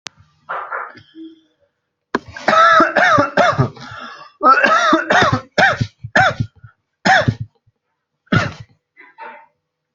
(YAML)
expert_labels:
- quality: good
  cough_type: wet
  dyspnea: false
  wheezing: false
  stridor: false
  choking: false
  congestion: false
  nothing: true
  diagnosis: upper respiratory tract infection
  severity: severe
age: 21
gender: male
respiratory_condition: false
fever_muscle_pain: false
status: healthy